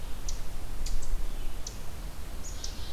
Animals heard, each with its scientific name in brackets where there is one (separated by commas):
Ovenbird (Seiurus aurocapilla)